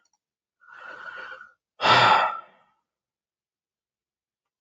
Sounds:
Sigh